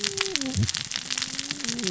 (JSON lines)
{"label": "biophony, cascading saw", "recorder": "SoundTrap 600 or HydroMoth"}